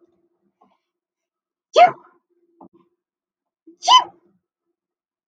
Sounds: Sneeze